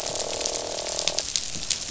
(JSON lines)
{"label": "biophony, croak", "recorder": "SoundTrap 500"}